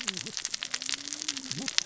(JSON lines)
{"label": "biophony, cascading saw", "recorder": "SoundTrap 600 or HydroMoth"}